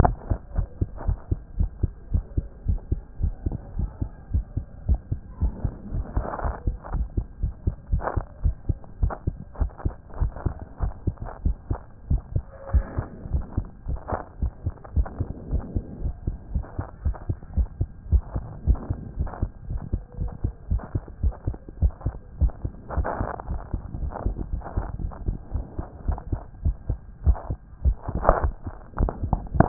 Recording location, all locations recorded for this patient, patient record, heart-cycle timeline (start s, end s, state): tricuspid valve (TV)
aortic valve (AV)+pulmonary valve (PV)+tricuspid valve (TV)+mitral valve (MV)
#Age: Child
#Sex: Male
#Height: 135.0 cm
#Weight: 28.2 kg
#Pregnancy status: False
#Murmur: Absent
#Murmur locations: nan
#Most audible location: nan
#Systolic murmur timing: nan
#Systolic murmur shape: nan
#Systolic murmur grading: nan
#Systolic murmur pitch: nan
#Systolic murmur quality: nan
#Diastolic murmur timing: nan
#Diastolic murmur shape: nan
#Diastolic murmur grading: nan
#Diastolic murmur pitch: nan
#Diastolic murmur quality: nan
#Outcome: Normal
#Campaign: 2014 screening campaign
0.00	0.02	diastole
0.02	0.14	S1
0.14	0.30	systole
0.30	0.38	S2
0.38	0.56	diastole
0.56	0.66	S1
0.66	0.80	systole
0.80	0.88	S2
0.88	1.06	diastole
1.06	1.18	S1
1.18	1.30	systole
1.30	1.40	S2
1.40	1.58	diastole
1.58	1.70	S1
1.70	1.82	systole
1.82	1.90	S2
1.90	2.12	diastole
2.12	2.24	S1
2.24	2.36	systole
2.36	2.46	S2
2.46	2.66	diastole
2.66	2.80	S1
2.80	2.90	systole
2.90	3.00	S2
3.00	3.20	diastole
3.20	3.34	S1
3.34	3.46	systole
3.46	3.56	S2
3.56	3.76	diastole
3.76	3.90	S1
3.90	4.00	systole
4.00	4.10	S2
4.10	4.32	diastole
4.32	4.44	S1
4.44	4.56	systole
4.56	4.64	S2
4.64	4.88	diastole
4.88	5.00	S1
5.00	5.10	systole
5.10	5.20	S2
5.20	5.40	diastole
5.40	5.52	S1
5.52	5.64	systole
5.64	5.72	S2
5.72	5.92	diastole
5.92	6.04	S1
6.04	6.16	systole
6.16	6.26	S2
6.26	6.44	diastole
6.44	6.54	S1
6.54	6.66	systole
6.66	6.76	S2
6.76	6.94	diastole
6.94	7.06	S1
7.06	7.16	systole
7.16	7.26	S2
7.26	7.42	diastole
7.42	7.54	S1
7.54	7.66	systole
7.66	7.74	S2
7.74	7.92	diastole
7.92	8.04	S1
8.04	8.16	systole
8.16	8.24	S2
8.24	8.44	diastole
8.44	8.56	S1
8.56	8.68	systole
8.68	8.78	S2
8.78	9.00	diastole
9.00	9.12	S1
9.12	9.26	systole
9.26	9.36	S2
9.36	9.60	diastole
9.60	9.70	S1
9.70	9.84	systole
9.84	9.94	S2
9.94	10.20	diastole
10.20	10.32	S1
10.32	10.44	systole
10.44	10.54	S2
10.54	10.82	diastole
10.82	10.92	S1
10.92	11.06	systole
11.06	11.14	S2
11.14	11.44	diastole
11.44	11.56	S1
11.56	11.70	systole
11.70	11.78	S2
11.78	12.10	diastole
12.10	12.22	S1
12.22	12.34	systole
12.34	12.44	S2
12.44	12.72	diastole
12.72	12.84	S1
12.84	12.96	systole
12.96	13.06	S2
13.06	13.32	diastole
13.32	13.44	S1
13.44	13.56	systole
13.56	13.66	S2
13.66	13.88	diastole
13.88	14.00	S1
14.00	14.12	systole
14.12	14.20	S2
14.20	14.40	diastole
14.40	14.52	S1
14.52	14.64	systole
14.64	14.74	S2
14.74	14.96	diastole
14.96	15.06	S1
15.06	15.18	systole
15.18	15.28	S2
15.28	15.50	diastole
15.50	15.62	S1
15.62	15.74	systole
15.74	15.84	S2
15.84	16.02	diastole
16.02	16.14	S1
16.14	16.26	systole
16.26	16.36	S2
16.36	16.54	diastole
16.54	16.64	S1
16.64	16.78	systole
16.78	16.86	S2
16.86	17.04	diastole
17.04	17.16	S1
17.16	17.28	systole
17.28	17.38	S2
17.38	17.56	diastole
17.56	17.68	S1
17.68	17.80	systole
17.80	17.88	S2
17.88	18.10	diastole
18.10	18.22	S1
18.22	18.34	systole
18.34	18.44	S2
18.44	18.66	diastole
18.66	18.78	S1
18.78	18.90	systole
18.90	18.98	S2
18.98	19.18	diastole
19.18	19.30	S1
19.30	19.40	systole
19.40	19.50	S2
19.50	19.70	diastole
19.70	19.80	S1
19.80	19.92	systole
19.92	20.02	S2
20.02	20.20	diastole
20.20	20.32	S1
20.32	20.44	systole
20.44	20.52	S2
20.52	20.70	diastole
20.70	20.82	S1
20.82	20.94	systole
20.94	21.02	S2
21.02	21.22	diastole
21.22	21.34	S1
21.34	21.46	systole
21.46	21.56	S2
21.56	21.80	diastole
21.80	21.92	S1
21.92	22.04	systole
22.04	22.14	S2
22.14	22.40	diastole
22.40	22.52	S1
22.52	22.64	systole
22.64	22.72	S2
22.72	22.96	diastole
22.96	23.08	S1
23.08	23.20	systole
23.20	23.28	S2
23.28	23.48	diastole
23.48	23.60	S1
23.60	23.72	systole
23.72	23.82	S2
23.82	24.00	diastole
24.00	24.12	S1
24.12	24.24	systole
24.24	24.36	S2
24.36	24.52	diastole
24.52	24.62	S1
24.62	24.76	systole
24.76	24.86	S2
24.86	25.02	diastole
25.02	25.12	S1
25.12	25.26	systole
25.26	25.36	S2
25.36	25.54	diastole
25.54	25.64	S1
25.64	25.78	systole
25.78	25.86	S2
25.86	26.06	diastole
26.06	26.18	S1
26.18	26.30	systole
26.30	26.40	S2
26.40	26.64	diastole
26.64	26.76	S1
26.76	26.88	systole
26.88	26.98	S2
26.98	27.24	diastole
27.24	27.38	S1
27.38	27.48	systole
27.48	27.58	S2
27.58	27.84	diastole
27.84	27.96	S1
27.96	28.08	systole
28.08	28.22	S2
28.22	28.42	diastole
28.42	28.54	S1
28.54	28.66	systole
28.66	28.74	S2
28.74	28.98	diastole
28.98	29.12	S1
29.12	29.24	systole
29.24	29.38	S2
29.38	29.56	diastole
29.56	29.68	S1